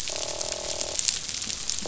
{"label": "biophony, croak", "recorder": "SoundTrap 500"}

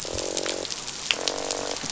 {"label": "biophony, croak", "recorder": "SoundTrap 500"}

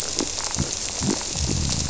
{"label": "biophony", "recorder": "SoundTrap 300"}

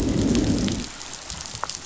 {"label": "biophony, growl", "recorder": "SoundTrap 500"}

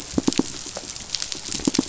{"label": "biophony, pulse", "recorder": "SoundTrap 500"}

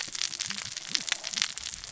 {"label": "biophony, cascading saw", "recorder": "SoundTrap 600 or HydroMoth"}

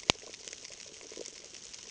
{"label": "ambient", "recorder": "HydroMoth"}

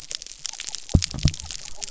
{"label": "biophony", "recorder": "SoundTrap 300"}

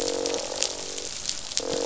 {"label": "biophony, croak", "recorder": "SoundTrap 500"}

